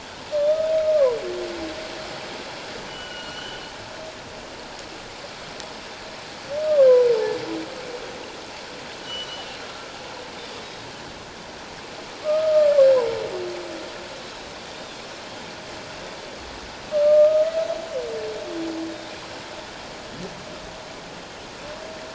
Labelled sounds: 2.9	3.6	humpback whale, 1.2 to 3.2 kHz
9.0	9.5	humpback whale, 2.8 to 6.0 kHz
10.4	10.9	Pacific white-sided dolphin, 3.4 to 3.9 kHz
12.2	12.7	humpback whale, 1.1 to 1.3 kHz
14.7	15.0	Pacific white-sided dolphin, 3.3 to 3.8 kHz
16.9	17.5	humpback whale, 1.2 to 1.4 kHz

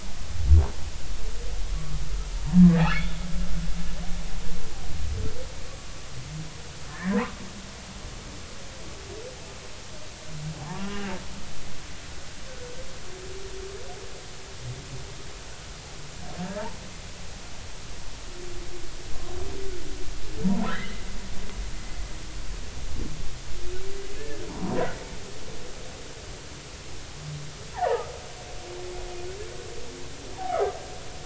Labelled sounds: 2.7	3.2	humpback whale, 1.2 to 3.6 kHz
6.9	7.4	humpback whale, 0.83 to 2.1 kHz
10.6	11.2	humpback whale, 0.80 to 2.9 kHz
12.5	12.7	humpback whale, 1.4 to 1.6 kHz
20.7	21.0	humpback whale, 1.2 to 2.1 kHz
24.2	24.8	humpback whale, 0.86 to 1.8 kHz
27.7	28.1	humpback whale, 0.80 to 2.0 kHz
30.5	30.8	humpback whale, 1.0 to 1.5 kHz

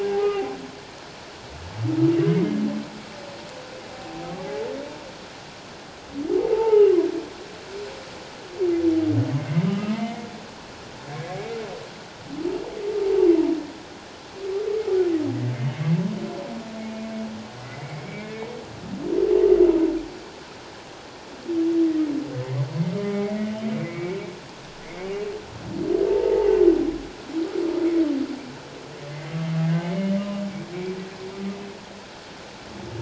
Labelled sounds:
0.0	0.5	humpback whale, 0.78 to 2.9 kHz
2.1	2.4	humpback whale, 2.0 to 3.1 kHz
3.9	4.7	humpback whale, 0.78 to 0.91 kHz
6.4	6.9	humpback whale, 0.78 to 1.4 kHz
9.7	10.3	humpback whale, 1.2 to 2.2 kHz
15.5	16.0	humpback whale, 2.0 to 2.2 kHz
18.2	18.5	humpback whale, 1.7 to 1.8 kHz
23.0	24.2	humpback whale, 1.2 to 2.3 kHz
26.1	26.6	humpback whale, 0.78 to 0.97 kHz
29.1	29.4	humpback whale, 1.9 to 2.2 kHz
29.8	30.1	humpback whale, 2.1 to 2.3 kHz

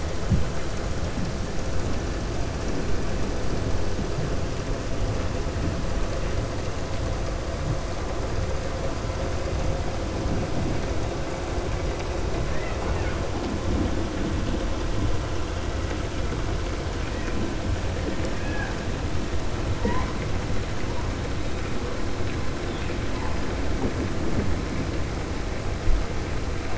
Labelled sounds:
12.4	13.2	killer whale, 0.49 to 3.2 kHz
18.2	18.8	killer whale, 0.77 to 3.4 kHz

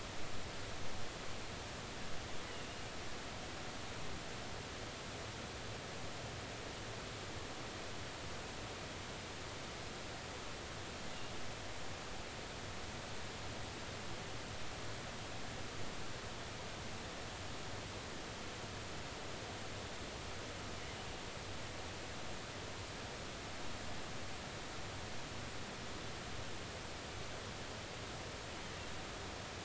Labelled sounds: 2.5	2.9	killer whale, offshore, 2.7 to 3.0 kHz

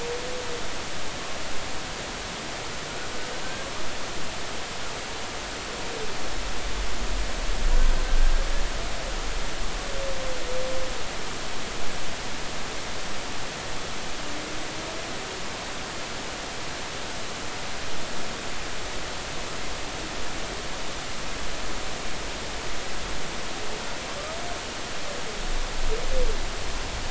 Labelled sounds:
3.4	3.7	humpback whale, 1.5 to 1.7 kHz

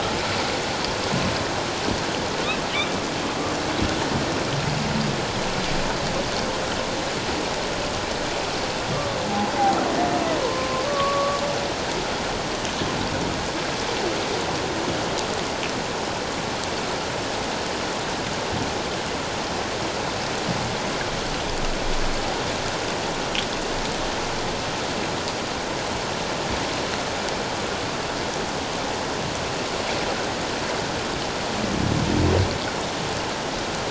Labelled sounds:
9.2	9.5	humpback whale, 0.78 to 0.94 kHz
10.4	11.4	humpback whale, 0.91 to 1.2 kHz

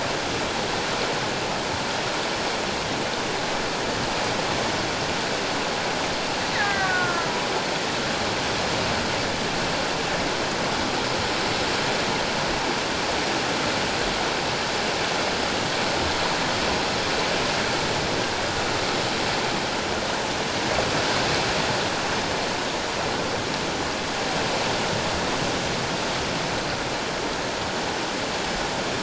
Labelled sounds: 6.5	7.3	killer whale, Bigg's (transient), 1.2 to 2.1 kHz

